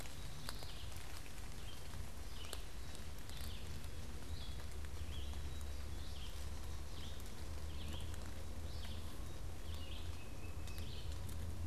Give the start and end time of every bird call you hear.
0.0s-11.7s: Red-eyed Vireo (Vireo olivaceus)
1.8s-11.7s: Black-capped Chickadee (Poecile atricapillus)
9.7s-11.0s: Tufted Titmouse (Baeolophus bicolor)

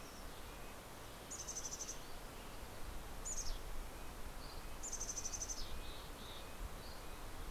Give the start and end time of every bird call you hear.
0.0s-7.4s: Red-breasted Nuthatch (Sitta canadensis)
1.0s-4.1s: Mountain Chickadee (Poecile gambeli)
4.1s-4.8s: Dusky Flycatcher (Empidonax oberholseri)
4.5s-6.6s: Mountain Chickadee (Poecile gambeli)
6.6s-7.4s: Dusky Flycatcher (Empidonax oberholseri)

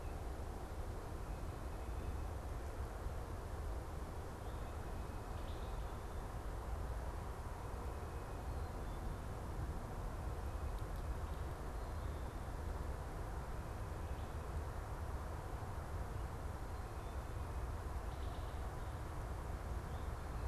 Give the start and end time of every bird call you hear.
0.0s-2.4s: Tufted Titmouse (Baeolophus bicolor)
4.4s-6.0s: Tufted Titmouse (Baeolophus bicolor)
5.2s-5.8s: Wood Thrush (Hylocichla mustelina)
7.3s-19.4s: Tufted Titmouse (Baeolophus bicolor)
8.3s-9.2s: Black-capped Chickadee (Poecile atricapillus)

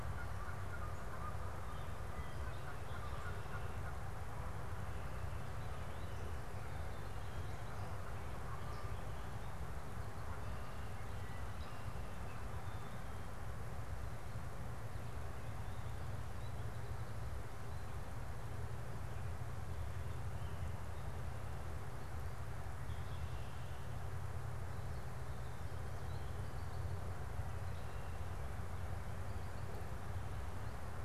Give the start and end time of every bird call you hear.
0.0s-4.5s: Canada Goose (Branta canadensis)

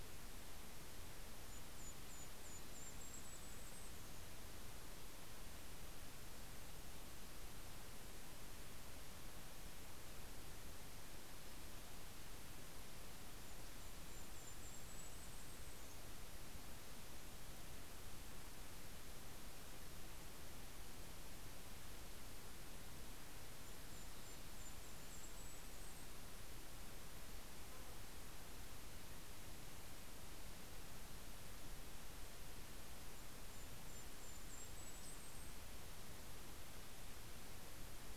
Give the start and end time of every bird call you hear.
0.4s-4.5s: Golden-crowned Kinglet (Regulus satrapa)
13.3s-16.6s: Golden-crowned Kinglet (Regulus satrapa)
23.0s-26.6s: Golden-crowned Kinglet (Regulus satrapa)
32.6s-35.9s: Golden-crowned Kinglet (Regulus satrapa)

